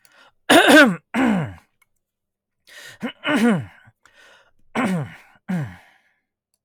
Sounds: Throat clearing